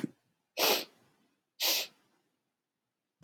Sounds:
Sniff